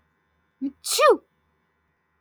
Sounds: Sneeze